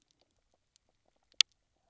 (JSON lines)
{"label": "biophony, knock croak", "recorder": "SoundTrap 300"}